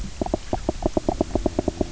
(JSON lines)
{"label": "biophony, knock croak", "recorder": "SoundTrap 300"}